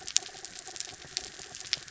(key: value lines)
label: anthrophony, mechanical
recorder: SoundTrap 300